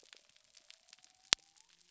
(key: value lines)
label: biophony
recorder: SoundTrap 300